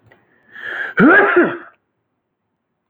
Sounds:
Sneeze